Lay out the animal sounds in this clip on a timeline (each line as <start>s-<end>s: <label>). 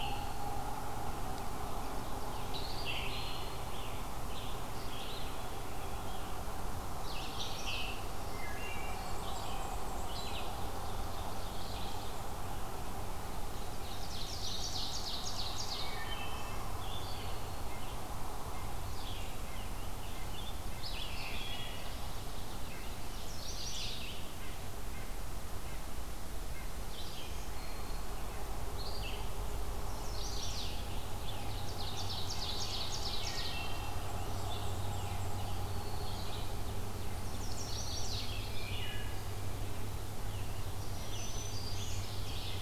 0.0s-30.8s: Red-eyed Vireo (Vireo olivaceus)
2.4s-3.2s: Scarlet Tanager (Piranga olivacea)
3.6s-5.3s: Scarlet Tanager (Piranga olivacea)
6.8s-7.9s: Chestnut-sided Warbler (Setophaga pensylvanica)
7.3s-8.0s: Scarlet Tanager (Piranga olivacea)
8.2s-9.2s: Wood Thrush (Hylocichla mustelina)
8.6s-10.3s: Black-and-white Warbler (Mniotilta varia)
10.2s-12.3s: Ovenbird (Seiurus aurocapilla)
13.5s-16.1s: Ovenbird (Seiurus aurocapilla)
13.8s-14.9s: Chestnut-sided Warbler (Setophaga pensylvanica)
15.7s-16.6s: Wood Thrush (Hylocichla mustelina)
17.6s-26.8s: White-breasted Nuthatch (Sitta carolinensis)
18.9s-20.6s: Rose-breasted Grosbeak (Pheucticus ludovicianus)
21.0s-22.0s: Wood Thrush (Hylocichla mustelina)
22.8s-24.1s: Chestnut-sided Warbler (Setophaga pensylvanica)
26.7s-28.2s: Black-throated Green Warbler (Setophaga virens)
29.6s-31.0s: Chestnut-sided Warbler (Setophaga pensylvanica)
31.0s-33.7s: Ovenbird (Seiurus aurocapilla)
32.9s-34.2s: Wood Thrush (Hylocichla mustelina)
33.9s-35.4s: Black-and-white Warbler (Mniotilta varia)
34.1s-39.0s: Red-eyed Vireo (Vireo olivaceus)
35.2s-36.5s: Black-throated Green Warbler (Setophaga virens)
37.0s-38.4s: Chestnut-sided Warbler (Setophaga pensylvanica)
38.1s-39.5s: Wood Thrush (Hylocichla mustelina)
40.2s-42.6s: Scarlet Tanager (Piranga olivacea)
40.6s-42.6s: Ovenbird (Seiurus aurocapilla)
40.7s-42.3s: Black-throated Green Warbler (Setophaga virens)